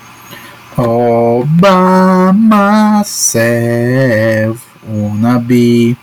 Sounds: Sigh